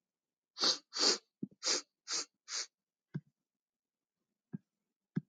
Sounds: Sniff